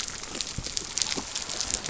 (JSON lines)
{"label": "biophony", "recorder": "SoundTrap 300"}